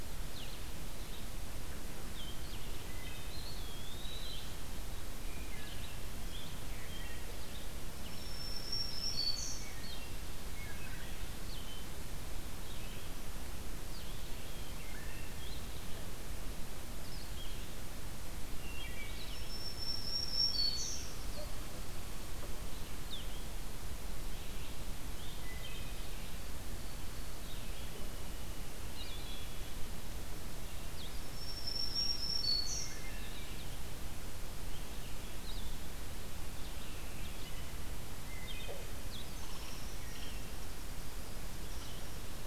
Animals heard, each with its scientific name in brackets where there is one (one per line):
Black-throated Green Warbler (Setophaga virens)
Wood Thrush (Hylocichla mustelina)
Blue-headed Vireo (Vireo solitarius)
Eastern Wood-Pewee (Contopus virens)
unknown mammal